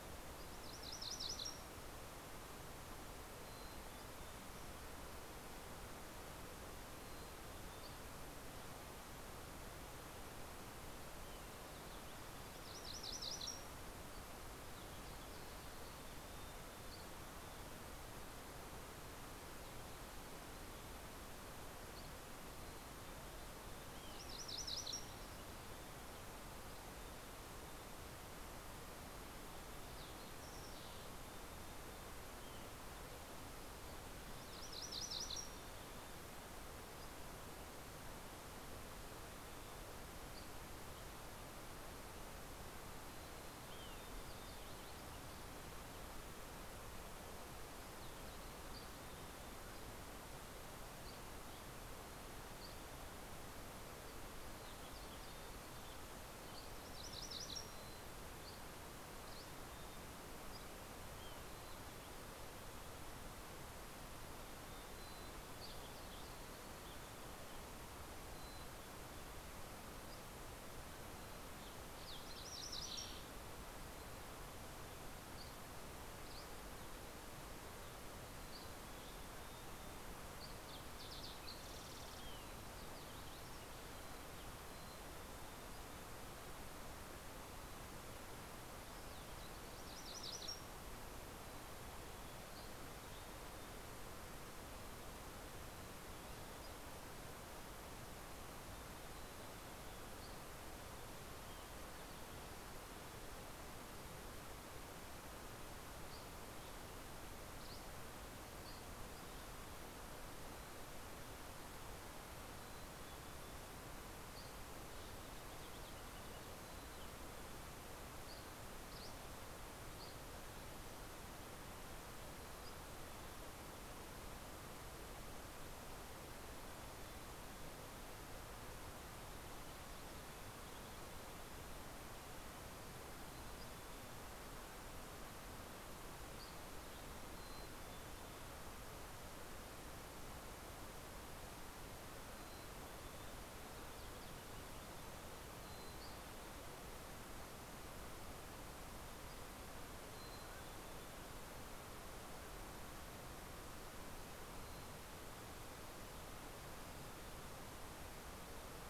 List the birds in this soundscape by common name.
MacGillivray's Warbler, Mountain Chickadee, Dusky Flycatcher, Fox Sparrow, Spotted Towhee, Mountain Quail